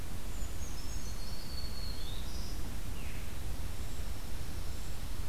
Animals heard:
Veery (Catharus fuscescens), Dark-eyed Junco (Junco hyemalis), Black-throated Green Warbler (Setophaga virens), Brown Creeper (Certhia americana)

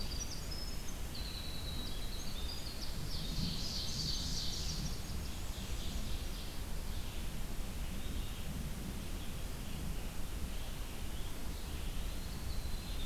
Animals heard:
Eastern Wood-Pewee (Contopus virens), Winter Wren (Troglodytes hiemalis), Red-eyed Vireo (Vireo olivaceus), Ovenbird (Seiurus aurocapilla)

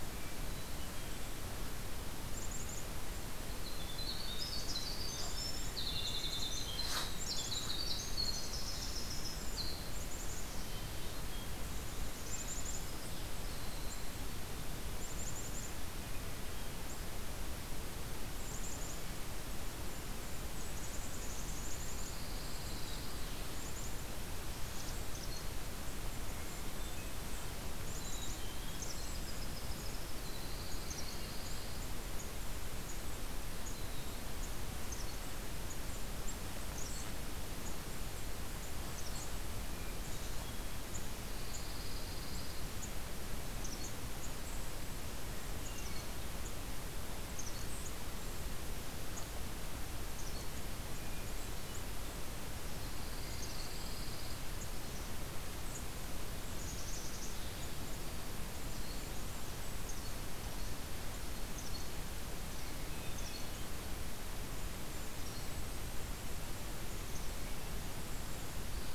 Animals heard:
Hermit Thrush (Catharus guttatus), Winter Wren (Troglodytes hiemalis), Black-capped Chickadee (Poecile atricapillus), Golden-crowned Kinglet (Regulus satrapa), Magnolia Warbler (Setophaga magnolia), Pine Warbler (Setophaga pinus)

